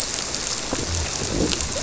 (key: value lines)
label: biophony
recorder: SoundTrap 300